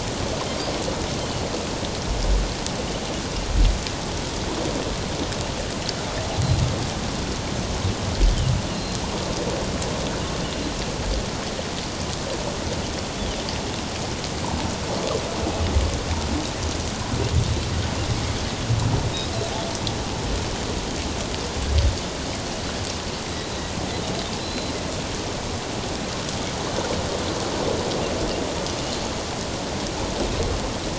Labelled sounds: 8.7	9.0	Pacific white-sided dolphin, 2.7 to 2.9 kHz
23.3	23.7	Pacific white-sided dolphin, 3.7 to 4.1 kHz
24.4	24.7	Pacific white-sided dolphin, 3.9 to 4.2 kHz

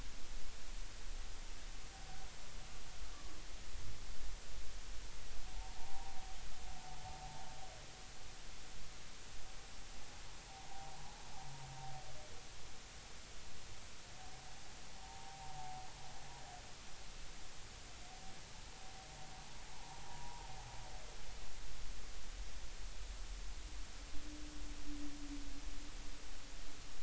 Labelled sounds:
5.5	6.2	humpback whale, 0.80 to 0.99 kHz
15.0	15.5	humpback whale, 0.80 to 1.1 kHz
19.7	20.5	humpback whale, 0.80 to 1.1 kHz

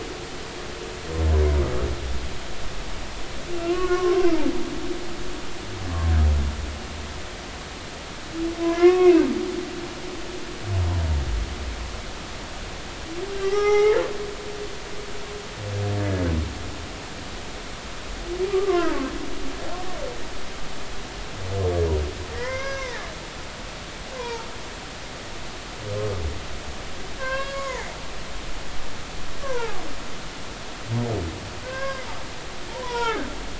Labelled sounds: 3.6	4.2	humpback whale, 0.99 to 3.0 kHz
8.6	9.2	humpback whale, 0.96 to 2.6 kHz
13.4	14.0	humpback whale, 0.80 to 5.9 kHz
18.5	19.0	humpback whale, 0.83 to 1.2 kHz
22.3	23.1	humpback whale, 0.80 to 6.0 kHz
24.2	24.5	humpback whale, 0.86 to 1.1 kHz
27.1	27.9	humpback whale, 0.83 to 5.0 kHz
29.4	29.8	humpback whale, 0.80 to 1.8 kHz
31.6	32.0	humpback whale, 0.96 to 5.5 kHz
32.7	33.3	humpback whale, 0.80 to 4.9 kHz

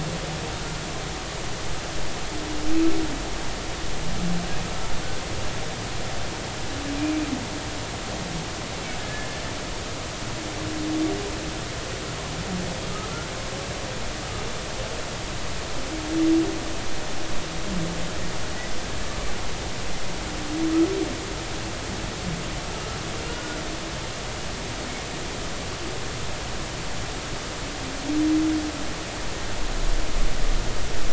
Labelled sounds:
9.0	9.4	humpback whale, 1.6 to 1.8 kHz
23.2	23.6	humpback whale, 1.4 to 3.0 kHz

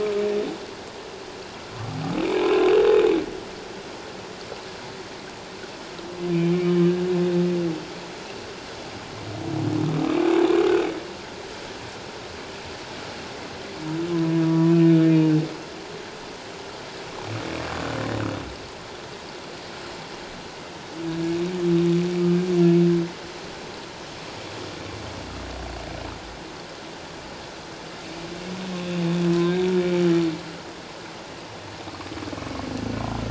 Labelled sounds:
2.2	2.6	humpback whale, 2.2 to 2.8 kHz
6.3	6.7	humpback whale, 2.2 to 2.6 kHz
14.4	14.7	humpback whale, 0.94 to 1.2 kHz
29.4	29.6	humpback whale, 1.5 to 1.7 kHz

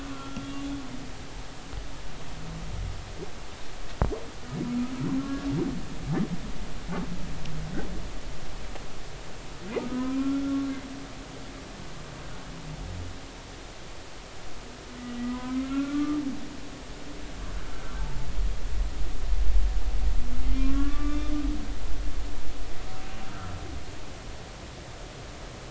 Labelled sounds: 0.1	0.4	humpback whale, 1.3 to 1.4 kHz
5.2	5.5	humpback whale, 1.1 to 1.4 kHz
9.9	10.6	humpback whale, 0.96 to 1.4 kHz
15.2	16.2	humpback whale, 0.96 to 2.3 kHz
18.0	18.3	humpback whale, 0.83 to 0.93 kHz
20.6	21.3	humpback whale, 1.0 to 3.7 kHz
23.3	23.5	humpback whale, 1.2 to 1.4 kHz

